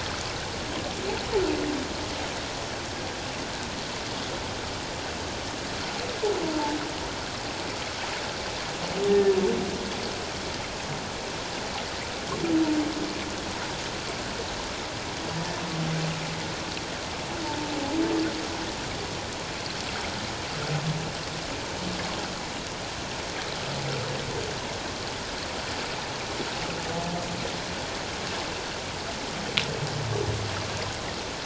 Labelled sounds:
6.4	6.8	humpback whale, 0.81 to 0.97 kHz
9.1	9.3	humpback whale, 1.7 to 1.9 kHz

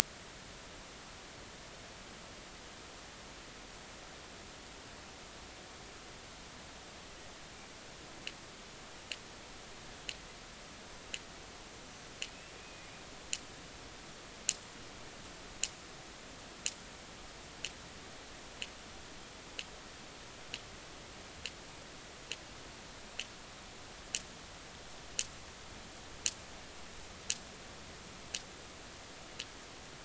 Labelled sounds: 12.6	12.9	killer whale, 2.4 to 2.6 kHz

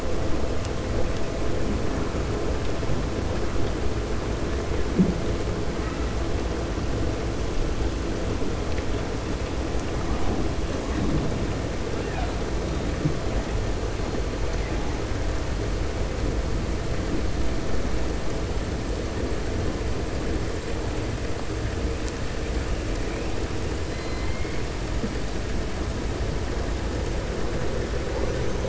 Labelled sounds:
23.8	24.6	killer whale, 2.0 to 5.1 kHz

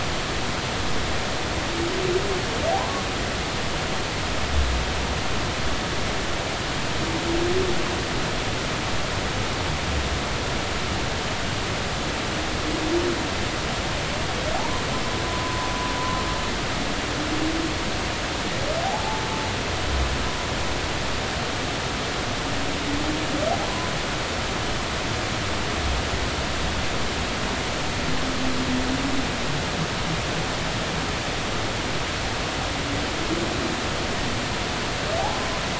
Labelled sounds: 14.5	14.8	humpback whale, 0.80 to 1.1 kHz
15.4	15.7	humpback whale, 0.90 to 1.1 kHz
18.8	19.2	humpback whale, 0.80 to 0.93 kHz

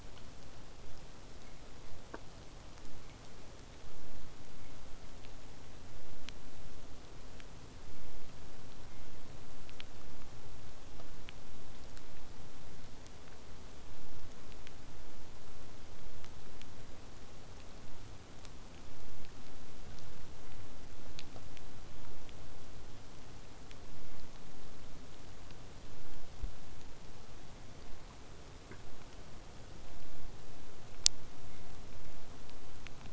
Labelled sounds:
21.6	22.3	killer whale, southern resident, 0.12 to 1.8 kHz

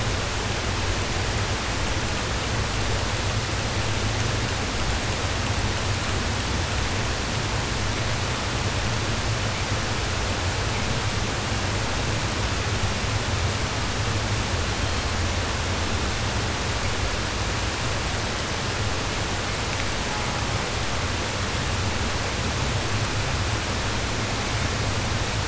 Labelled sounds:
14.5	15.2	killer whale, southern resident, 2.7 to 4.7 kHz
20.0	20.7	killer whale, southern resident, 0.54 to 1.7 kHz

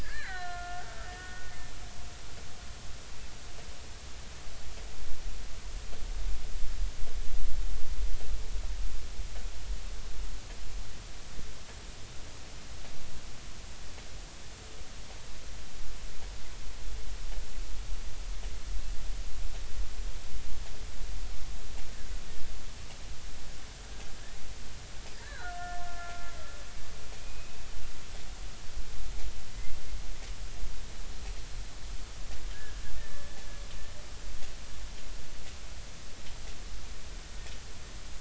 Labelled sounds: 0.0	1.6	killer whale, Bigg's (transient), 1.3 to 3.1 kHz
25.1	26.3	killer whale, Bigg's (transient), 1.3 to 2.0 kHz
27.2	27.6	killer whale, Bigg's (transient), 2.4 to 2.6 kHz
33.0	33.4	killer whale, Bigg's (transient), 1.7 to 1.9 kHz

